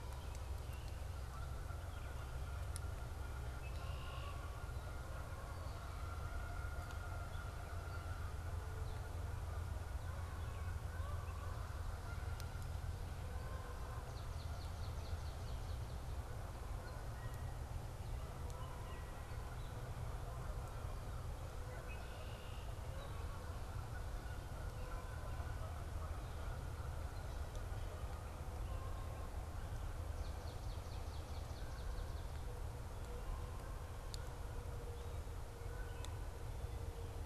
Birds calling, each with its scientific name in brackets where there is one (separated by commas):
Canada Goose (Branta canadensis), Swamp Sparrow (Melospiza georgiana), Red-winged Blackbird (Agelaius phoeniceus), American Robin (Turdus migratorius)